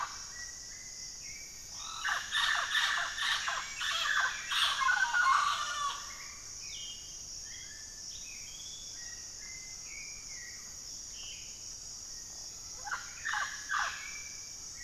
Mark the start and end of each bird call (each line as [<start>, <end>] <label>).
[0.00, 2.33] Black-faced Antthrush (Formicarius analis)
[0.00, 14.83] Hauxwell's Thrush (Turdus hauxwelli)
[0.00, 14.83] Mealy Parrot (Amazona farinosa)
[6.23, 7.33] unidentified bird
[8.03, 8.33] unidentified bird
[12.03, 14.73] Black-faced Antthrush (Formicarius analis)